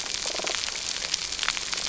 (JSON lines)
{"label": "biophony", "recorder": "SoundTrap 300"}